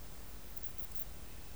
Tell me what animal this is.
Ephippigerida areolaria, an orthopteran